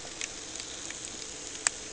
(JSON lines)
{"label": "ambient", "recorder": "HydroMoth"}